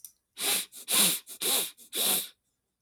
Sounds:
Sniff